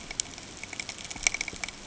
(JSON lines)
{"label": "ambient", "recorder": "HydroMoth"}